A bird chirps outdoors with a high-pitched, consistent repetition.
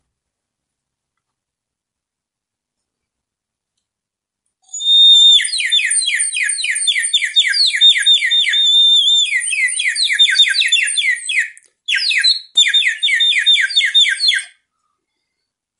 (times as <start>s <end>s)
4.7s 14.5s